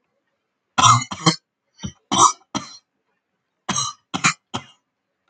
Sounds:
Cough